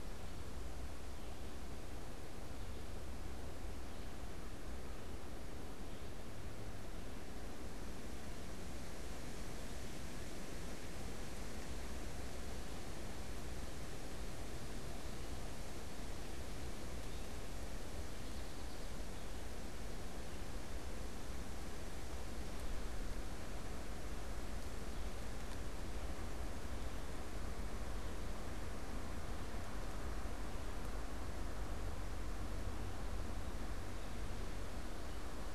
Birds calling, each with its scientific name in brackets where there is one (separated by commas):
unidentified bird